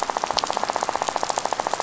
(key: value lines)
label: biophony, rattle
recorder: SoundTrap 500